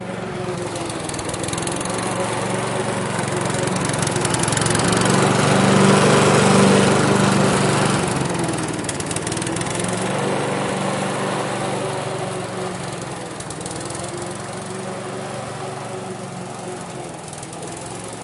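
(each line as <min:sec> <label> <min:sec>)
0:00.0 A lawnmower noise increases in volume and then decreases. 0:18.2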